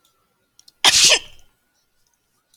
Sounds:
Sneeze